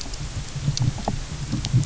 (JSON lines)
{"label": "anthrophony, boat engine", "recorder": "SoundTrap 300"}